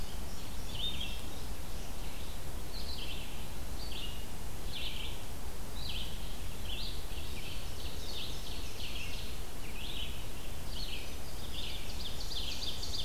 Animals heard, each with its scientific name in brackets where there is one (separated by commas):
Indigo Bunting (Passerina cyanea), Ovenbird (Seiurus aurocapilla), Red-eyed Vireo (Vireo olivaceus)